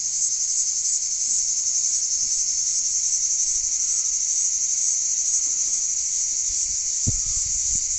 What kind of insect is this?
cicada